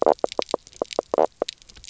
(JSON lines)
{"label": "biophony, knock croak", "recorder": "SoundTrap 300"}